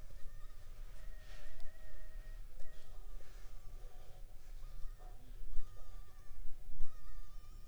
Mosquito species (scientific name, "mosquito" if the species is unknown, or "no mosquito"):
Anopheles funestus s.s.